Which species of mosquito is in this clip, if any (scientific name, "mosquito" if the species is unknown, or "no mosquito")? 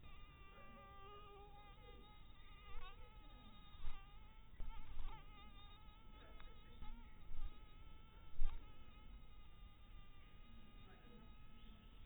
mosquito